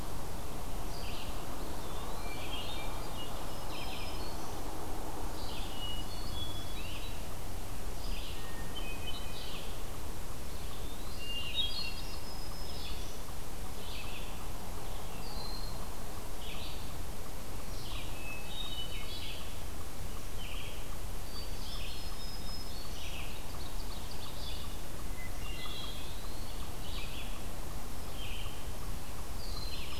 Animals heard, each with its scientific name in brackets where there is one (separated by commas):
Eastern Wood-Pewee (Contopus virens), Ovenbird (Seiurus aurocapilla), Broad-winged Hawk (Buteo platypterus), Great Crested Flycatcher (Myiarchus crinitus), Hermit Thrush (Catharus guttatus), Red-eyed Vireo (Vireo olivaceus), Black-throated Green Warbler (Setophaga virens)